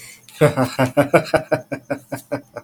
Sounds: Laughter